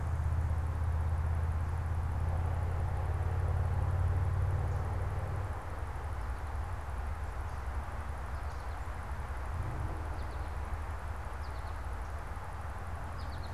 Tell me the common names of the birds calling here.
American Goldfinch